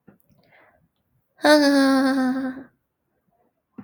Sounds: Laughter